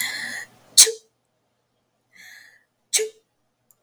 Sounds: Sneeze